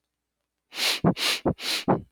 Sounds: Sniff